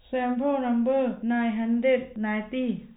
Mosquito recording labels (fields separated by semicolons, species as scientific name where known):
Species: no mosquito; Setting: cup